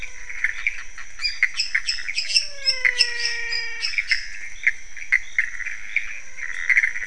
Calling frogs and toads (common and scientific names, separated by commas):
menwig frog (Physalaemus albonotatus), pointedbelly frog (Leptodactylus podicipinus), Pithecopus azureus, lesser tree frog (Dendropsophus minutus)